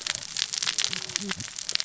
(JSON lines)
{"label": "biophony, cascading saw", "recorder": "SoundTrap 600 or HydroMoth"}